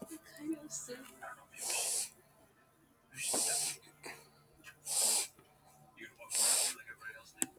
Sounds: Sniff